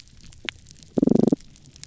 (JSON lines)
{"label": "biophony", "recorder": "SoundTrap 300"}